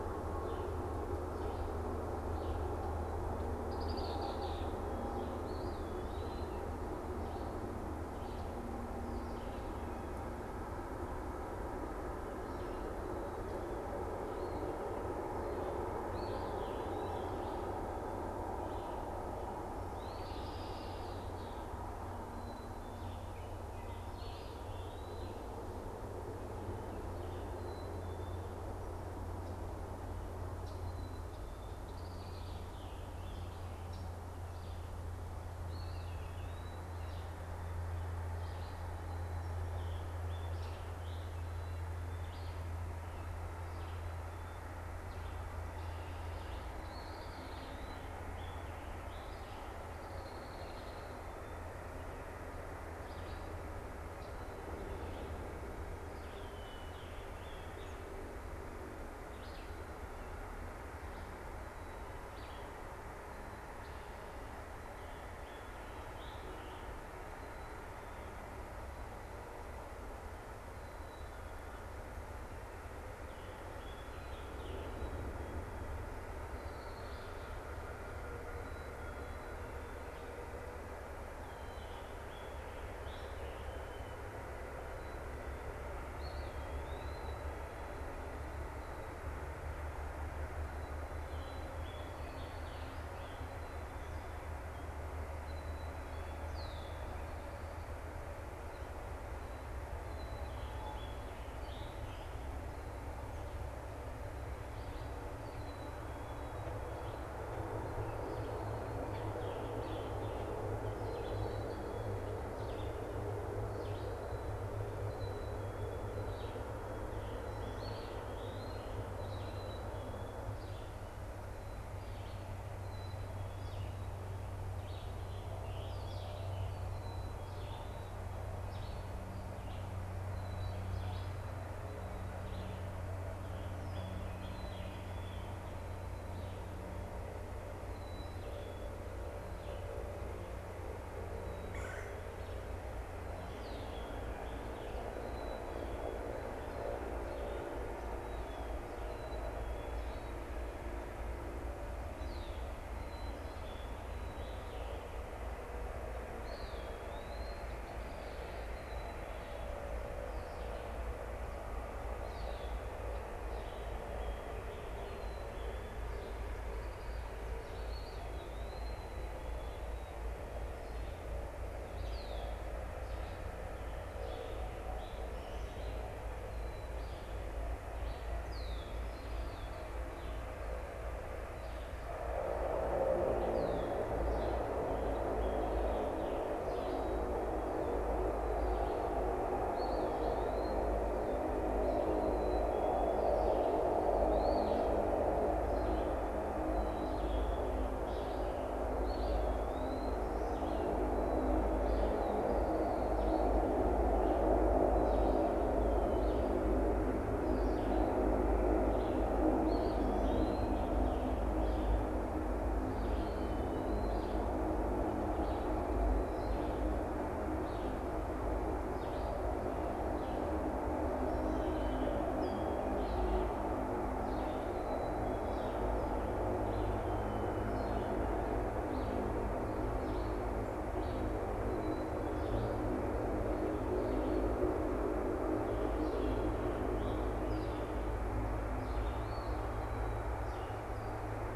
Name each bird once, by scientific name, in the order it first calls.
Vireo olivaceus, Agelaius phoeniceus, Contopus virens, Poecile atricapillus, Piranga olivacea, Melanerpes carolinus